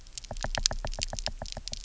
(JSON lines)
{"label": "biophony, knock", "recorder": "SoundTrap 300"}